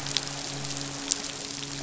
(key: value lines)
label: biophony, midshipman
recorder: SoundTrap 500